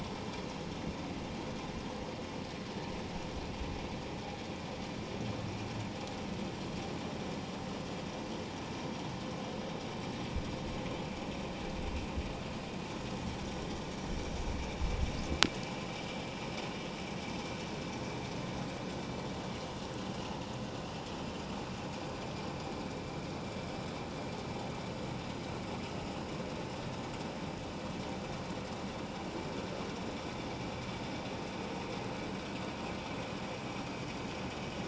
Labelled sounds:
20.1	20.4	vessel noise, 2.7 to 3.0 kHz

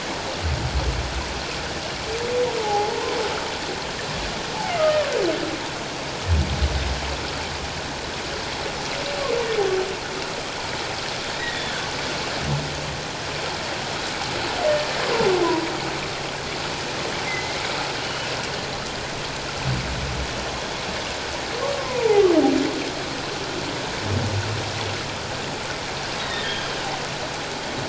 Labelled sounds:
2.6	3.2	humpback whale, 0.78 to 1.1 kHz
4.8	5.1	humpback whale, 1.1 to 1.3 kHz
11.4	11.6	humpback whale, 1.8 to 2.1 kHz
17.3	18.3	humpback whale, 2.0 to 3.0 kHz
21.7	22.2	humpback whale, 0.78 to 1.1 kHz
26.2	26.7	humpback whale, 1.6 to 3.9 kHz

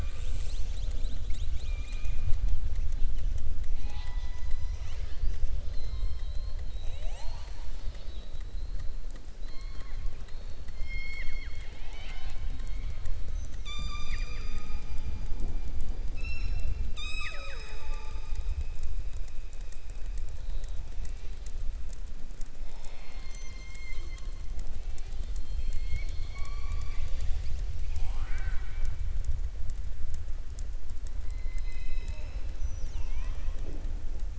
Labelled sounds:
10.7	12.9	killer whale, southern resident, 0.75 to 7.8 kHz
16.8	18.5	killer whale, southern resident, 0.56 to 7.8 kHz

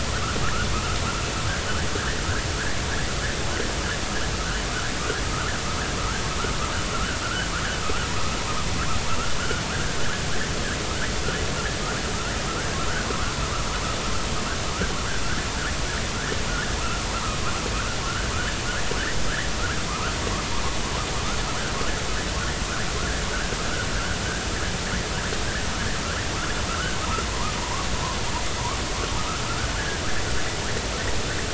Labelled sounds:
6.9	7.5	vessel noise, 1.2 to 1.8 kHz
9.7	10.0	vessel noise, 1.3 to 1.8 kHz
13.1	13.3	vessel noise, 0.96 to 1.5 kHz
16.8	17.0	vessel noise, 1.2 to 1.4 kHz
18.0	18.3	vessel noise, 1.3 to 1.9 kHz
19.9	20.1	vessel noise, 0.93 to 1.5 kHz
26.7	27.0	vessel noise, 1.2 to 1.6 kHz
27.6	27.9	vessel noise, 0.90 to 1.3 kHz
28.3	28.6	vessel noise, 0.90 to 1.3 kHz
29.8	30.0	vessel noise, 1.4 to 1.8 kHz

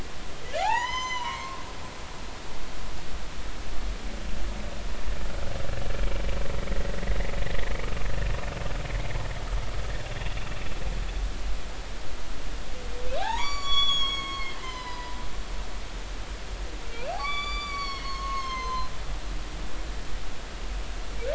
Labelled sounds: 0.6	2.3	humpback whale, 0.80 to 7.2 kHz
13.1	15.2	humpback whale, 0.80 to 7.0 kHz
16.9	18.9	humpback whale, 0.96 to 7.1 kHz

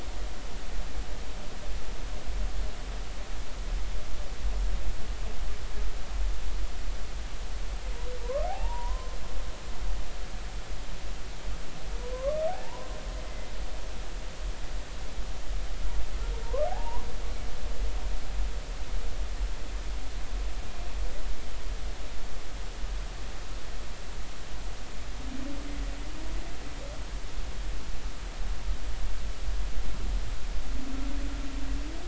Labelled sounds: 8.2	9.1	humpback whale, 0.80 to 1.3 kHz
12.1	12.4	humpback whale, 0.96 to 1.2 kHz
12.6	13.0	humpback whale, 0.86 to 1.1 kHz
16.4	17.1	humpback whale, 0.80 to 1.2 kHz

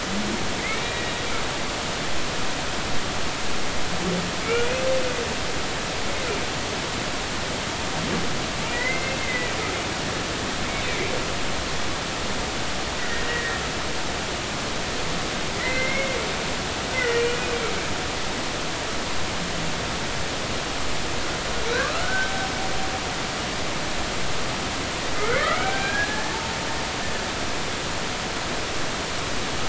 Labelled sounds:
0.6	1.1	humpback whale, 1.8 to 2.4 kHz
5.4	5.8	humpback whale, 2.1 to 2.6 kHz
8.7	9.5	humpback whale, 1.8 to 2.7 kHz
13.0	13.6	humpback whale, 1.8 to 2.0 kHz
15.5	16.2	humpback whale, 1.8 to 2.2 kHz
16.9	17.4	humpback whale, 1.8 to 2.4 kHz
21.8	22.3	humpback whale, 0.99 to 1.6 kHz
25.6	26.4	humpback whale, 1.4 to 1.8 kHz

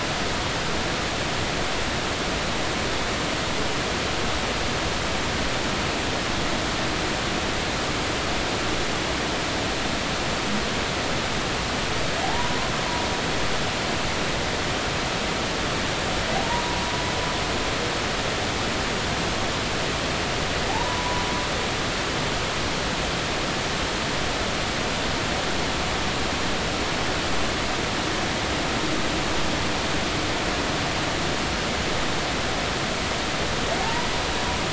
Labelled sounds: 12.2	12.5	humpback whale, 0.80 to 1.1 kHz
16.4	16.8	humpback whale, 0.86 to 1.0 kHz
20.7	21.3	humpback whale, 0.80 to 1.0 kHz
33.8	34.1	humpback whale, 0.80 to 1.0 kHz

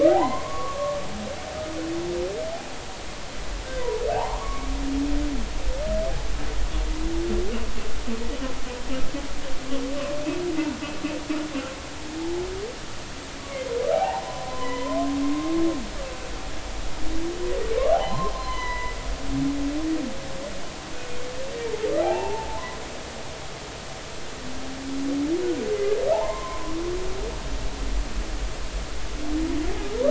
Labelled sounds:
0.0	1.1	humpback whale, 0.80 to 2.2 kHz
3.8	4.7	humpback whale, 0.80 to 2.4 kHz
13.9	15.5	humpback whale, 0.80 to 3.2 kHz
17.9	19.0	humpback whale, 0.80 to 4.2 kHz
22.0	22.8	humpback whale, 0.80 to 1.1 kHz
26.1	26.8	humpback whale, 0.80 to 1.1 kHz

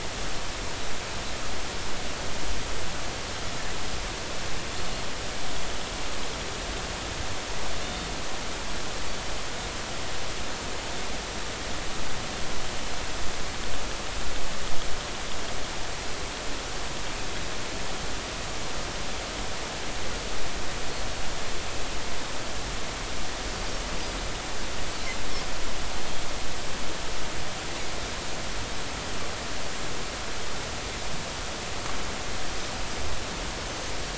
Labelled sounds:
7.8	8.1	Pacific white-sided dolphin, 3.5 to 3.7 kHz

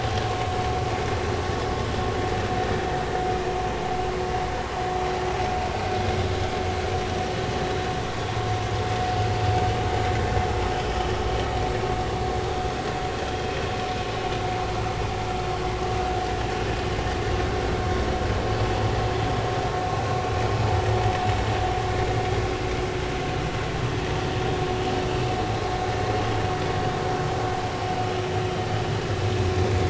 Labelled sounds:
7.6	7.9	vessel noise, 3.8 to 4.0 kHz

